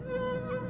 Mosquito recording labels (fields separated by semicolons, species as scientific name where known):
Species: Aedes albopictus; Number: several; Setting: insect culture